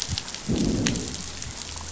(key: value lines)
label: biophony, growl
recorder: SoundTrap 500